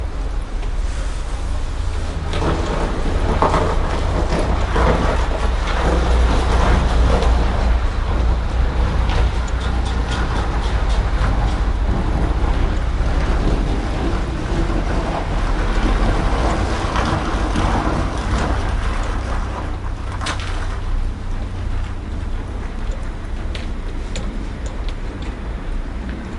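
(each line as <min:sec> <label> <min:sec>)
0:02.3 A vehicle is driving on an icy road. 0:25.5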